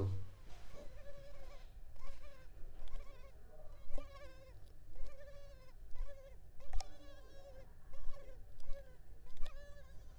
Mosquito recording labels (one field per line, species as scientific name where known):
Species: Culex pipiens complex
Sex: female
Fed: unfed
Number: one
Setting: cup